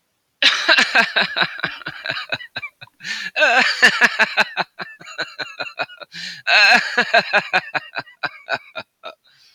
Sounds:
Laughter